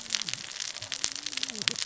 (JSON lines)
{"label": "biophony, cascading saw", "recorder": "SoundTrap 600 or HydroMoth"}